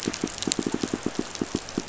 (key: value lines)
label: biophony, pulse
recorder: SoundTrap 500